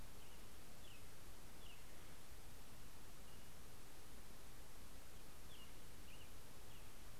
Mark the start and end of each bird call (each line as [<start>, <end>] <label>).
[0.00, 7.19] Pacific-slope Flycatcher (Empidonax difficilis)